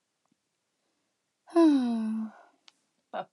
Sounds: Sigh